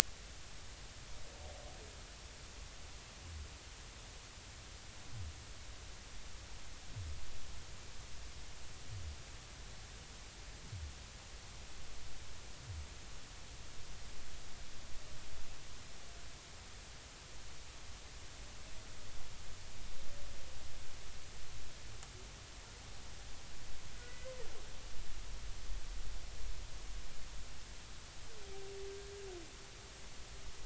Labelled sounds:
23.9	24.3	humpback whale, 1.4 to 2.1 kHz

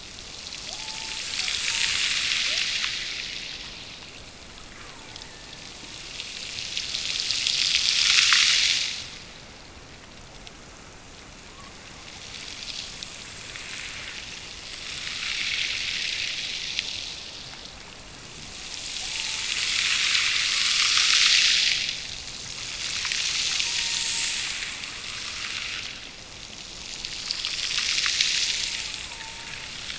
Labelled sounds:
0.7	2.1	killer whale, Bigg's (transient), Gulf of Alaska transient, 0.46 to 1.1 kHz
4.7	5.8	killer whale, Bigg's (transient), Gulf of Alaska transient, 0.66 to 2.5 kHz
18.9	19.6	killer whale, Bigg's (transient), Gulf of Alaska transient, 0.55 to 0.96 kHz
23.5	24.5	killer whale, Bigg's (transient), Gulf of Alaska transient, 0.78 to 1.9 kHz
28.2	29.8	killer whale, Bigg's (transient), Gulf of Alaska transient, 0.69 to 1.5 kHz

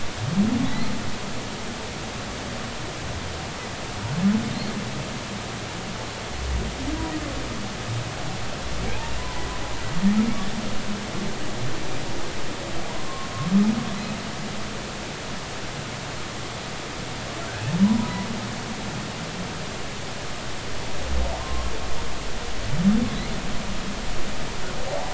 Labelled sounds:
0.7	0.9	humpback whale, 3.7 to 4.4 kHz
9.2	9.5	humpback whale, 0.80 to 1.1 kHz
12.9	13.3	humpback whale, 0.90 to 1.1 kHz
17.8	18.3	humpback whale, 0.93 to 1.1 kHz
21.4	21.7	humpback whale, 0.99 to 1.2 kHz
24.9	25.1	humpback whale, 0.80 to 0.93 kHz

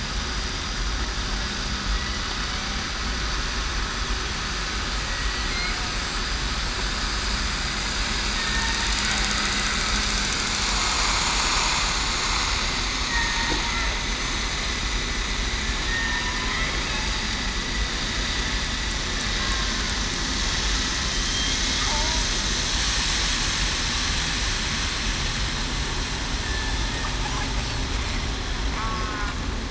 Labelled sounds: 15.8	16.2	killer whale, southern resident, 1.8 to 1.9 kHz
21.9	22.2	killer whale, southern resident, 0.77 to 0.98 kHz
28.8	29.2	killer whale, southern resident, 1.2 to 1.4 kHz

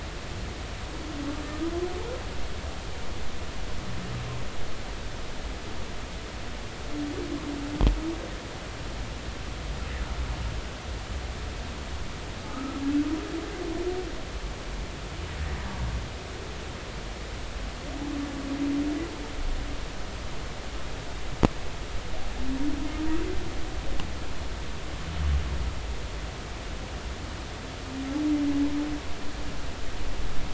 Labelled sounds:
12.4	12.8	humpback whale, 1.2 to 1.5 kHz

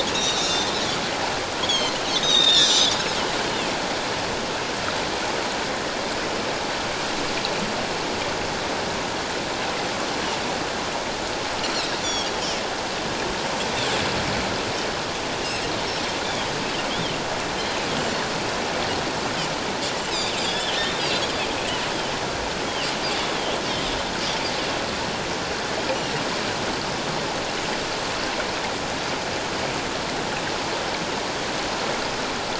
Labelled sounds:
0.1	2.9	Pacific white-sided dolphin, 1.6 to 7.7 kHz
11.7	12.3	Pacific white-sided dolphin, 3.2 to 7.1 kHz
16.2	16.5	Pacific white-sided dolphin, 3.0 to 3.6 kHz
16.9	17.1	Pacific white-sided dolphin, 2.9 to 3.7 kHz
20.4	21.0	Pacific white-sided dolphin, 2.9 to 3.7 kHz
23.3	23.6	Pacific white-sided dolphin, 3.0 to 3.5 kHz

